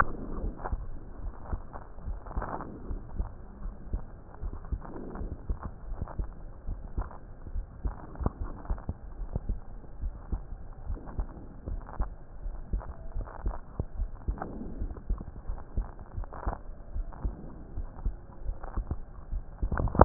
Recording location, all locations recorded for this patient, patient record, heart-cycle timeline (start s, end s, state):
aortic valve (AV)
aortic valve (AV)+pulmonary valve (PV)+tricuspid valve (TV)+mitral valve (MV)
#Age: Child
#Sex: Female
#Height: 140.0 cm
#Weight: 33.3 kg
#Pregnancy status: False
#Murmur: Absent
#Murmur locations: nan
#Most audible location: nan
#Systolic murmur timing: nan
#Systolic murmur shape: nan
#Systolic murmur grading: nan
#Systolic murmur pitch: nan
#Systolic murmur quality: nan
#Diastolic murmur timing: nan
#Diastolic murmur shape: nan
#Diastolic murmur grading: nan
#Diastolic murmur pitch: nan
#Diastolic murmur quality: nan
#Outcome: Abnormal
#Campaign: 2015 screening campaign
0.00	0.96	unannotated
0.96	1.22	diastole
1.22	1.34	S1
1.34	1.48	systole
1.48	1.62	S2
1.62	2.06	diastole
2.06	2.20	S1
2.20	2.34	systole
2.34	2.48	S2
2.48	2.88	diastole
2.88	3.02	S1
3.02	3.14	systole
3.14	3.30	S2
3.30	3.64	diastole
3.64	3.74	S1
3.74	3.92	systole
3.92	4.04	S2
4.04	4.42	diastole
4.42	4.54	S1
4.54	4.68	systole
4.68	4.82	S2
4.82	5.18	diastole
5.18	5.30	S1
5.30	5.46	systole
5.46	5.56	S2
5.56	5.90	diastole
5.90	6.00	S1
6.00	6.18	systole
6.18	6.32	S2
6.32	6.68	diastole
6.68	6.82	S1
6.82	6.94	systole
6.94	7.08	S2
7.08	7.52	diastole
7.52	7.68	S1
7.68	7.86	systole
7.86	7.96	S2
7.96	8.40	diastole
8.40	8.52	S1
8.52	8.66	systole
8.66	8.80	S2
8.80	9.18	diastole
9.18	9.30	S1
9.30	9.46	systole
9.46	9.60	S2
9.60	10.00	diastole
10.00	10.16	S1
10.16	10.30	systole
10.30	10.44	S2
10.44	10.86	diastole
10.86	10.98	S1
10.98	11.16	systole
11.16	11.30	S2
11.30	11.68	diastole
11.68	11.84	S1
11.84	11.98	systole
11.98	12.10	S2
12.10	12.44	diastole
12.44	12.56	S1
12.56	12.70	systole
12.70	12.82	S2
12.82	13.16	diastole
13.16	13.28	S1
13.28	13.44	systole
13.44	13.56	S2
13.56	13.98	diastole
13.98	14.12	S1
14.12	14.26	systole
14.26	14.36	S2
14.36	14.78	diastole
14.78	14.92	S1
14.92	15.08	systole
15.08	15.18	S2
15.18	15.46	diastole
15.46	15.60	S1
15.60	15.73	systole
15.73	15.84	S2
15.84	16.18	diastole
16.18	16.28	S1
16.28	16.44	systole
16.44	16.56	S2
16.56	16.94	diastole
16.94	17.06	S1
17.06	17.22	systole
17.22	17.34	S2
17.34	17.76	diastole
17.76	17.90	S1
17.90	18.04	systole
18.04	18.18	S2
18.18	18.28	diastole
18.28	20.05	unannotated